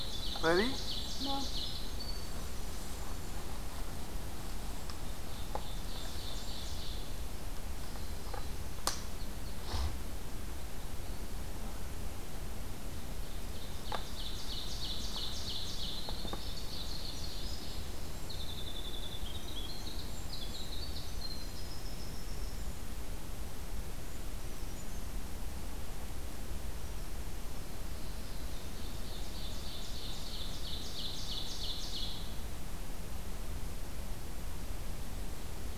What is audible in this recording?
Winter Wren, Ovenbird, Brown Creeper